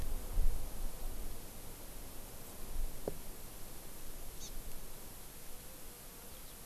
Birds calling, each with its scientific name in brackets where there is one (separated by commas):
Eurasian Skylark (Alauda arvensis), Hawaii Amakihi (Chlorodrepanis virens)